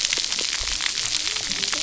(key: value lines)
label: biophony, cascading saw
recorder: SoundTrap 300